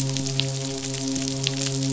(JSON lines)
{"label": "biophony, midshipman", "recorder": "SoundTrap 500"}